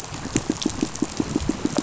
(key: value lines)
label: biophony, pulse
recorder: SoundTrap 500